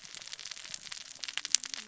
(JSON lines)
{"label": "biophony, cascading saw", "recorder": "SoundTrap 600 or HydroMoth"}